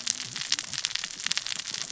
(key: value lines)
label: biophony, cascading saw
recorder: SoundTrap 600 or HydroMoth